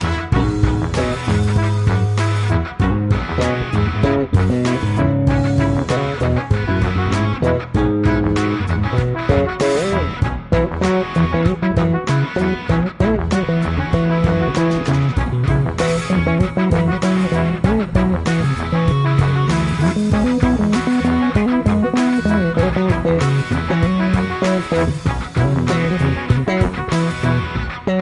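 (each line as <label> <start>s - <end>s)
A cheerful melody is played by a band with drums, a trumpet, and two electric guitars. 0.0s - 28.0s
A cheerful melody is played on a trumpet. 0.0s - 28.0s
Drums playing a cheerful melody. 0.0s - 28.0s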